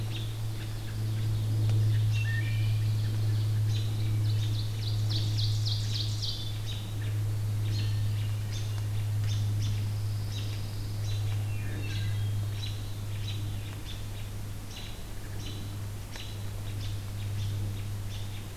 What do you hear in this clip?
American Robin, Ovenbird, Hermit Thrush, Wood Thrush, Pine Warbler